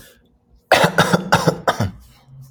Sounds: Cough